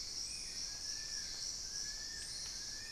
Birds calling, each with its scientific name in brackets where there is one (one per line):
Long-billed Woodcreeper (Nasica longirostris)
Spot-winged Antshrike (Pygiptila stellaris)